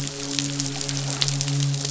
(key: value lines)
label: biophony, midshipman
recorder: SoundTrap 500